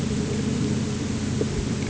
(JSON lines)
{"label": "anthrophony, boat engine", "recorder": "HydroMoth"}